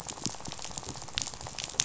{"label": "biophony, rattle", "recorder": "SoundTrap 500"}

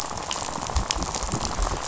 {"label": "biophony, rattle", "recorder": "SoundTrap 500"}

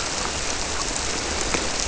{"label": "biophony", "recorder": "SoundTrap 300"}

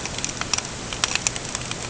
{"label": "ambient", "recorder": "HydroMoth"}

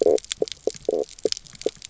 {"label": "biophony, knock croak", "recorder": "SoundTrap 300"}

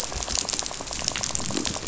{"label": "biophony, rattle", "recorder": "SoundTrap 500"}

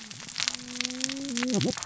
{"label": "biophony, cascading saw", "recorder": "SoundTrap 600 or HydroMoth"}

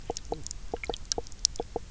{"label": "biophony, knock croak", "recorder": "SoundTrap 300"}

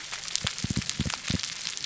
{"label": "biophony, pulse", "recorder": "SoundTrap 300"}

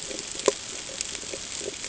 {"label": "ambient", "recorder": "HydroMoth"}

